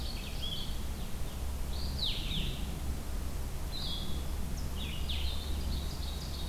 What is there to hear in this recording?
Blue-headed Vireo, Ovenbird